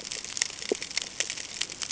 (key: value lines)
label: ambient
recorder: HydroMoth